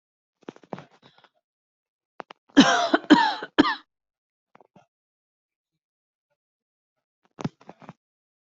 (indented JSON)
{
  "expert_labels": [
    {
      "quality": "good",
      "cough_type": "dry",
      "dyspnea": false,
      "wheezing": false,
      "stridor": false,
      "choking": false,
      "congestion": false,
      "nothing": true,
      "diagnosis": "upper respiratory tract infection",
      "severity": "mild"
    }
  ],
  "age": 18,
  "gender": "male",
  "respiratory_condition": true,
  "fever_muscle_pain": false,
  "status": "symptomatic"
}